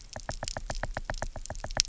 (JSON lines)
{"label": "biophony, knock", "recorder": "SoundTrap 300"}